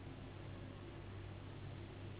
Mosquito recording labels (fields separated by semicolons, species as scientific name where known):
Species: Anopheles gambiae s.s.; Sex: female; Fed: unfed; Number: one; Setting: insect culture